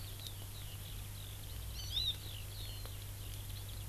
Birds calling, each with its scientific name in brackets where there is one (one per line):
Hawaii Amakihi (Chlorodrepanis virens)